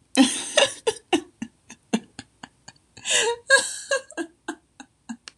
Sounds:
Laughter